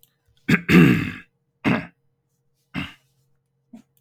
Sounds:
Throat clearing